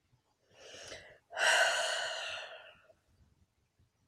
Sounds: Sigh